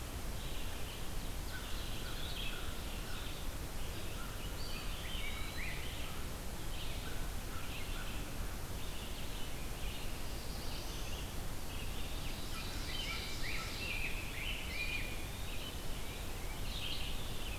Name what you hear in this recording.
Red-eyed Vireo, Ovenbird, American Crow, Eastern Wood-Pewee, Rose-breasted Grosbeak, Black-throated Blue Warbler